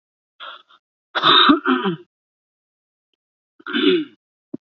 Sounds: Throat clearing